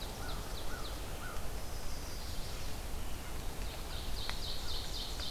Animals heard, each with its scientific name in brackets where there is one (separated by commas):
Ovenbird (Seiurus aurocapilla), Red-eyed Vireo (Vireo olivaceus), Chestnut-sided Warbler (Setophaga pensylvanica), American Crow (Corvus brachyrhynchos)